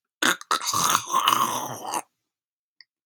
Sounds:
Throat clearing